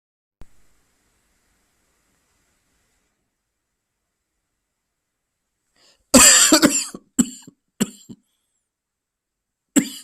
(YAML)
expert_labels:
- quality: good
  cough_type: dry
  dyspnea: false
  wheezing: false
  stridor: false
  choking: false
  congestion: false
  nothing: true
  diagnosis: upper respiratory tract infection
  severity: mild
age: 32
gender: male
respiratory_condition: false
fever_muscle_pain: false
status: symptomatic